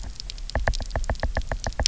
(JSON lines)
{"label": "biophony, knock", "recorder": "SoundTrap 300"}